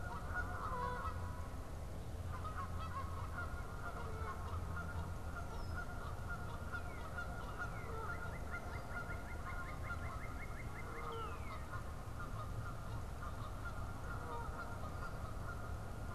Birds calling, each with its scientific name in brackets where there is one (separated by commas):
Red-winged Blackbird (Agelaius phoeniceus), Northern Cardinal (Cardinalis cardinalis), Canada Goose (Branta canadensis)